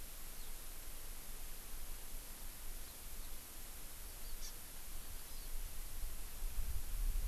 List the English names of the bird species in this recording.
Eurasian Skylark, Hawaii Amakihi